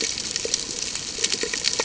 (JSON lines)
{"label": "ambient", "recorder": "HydroMoth"}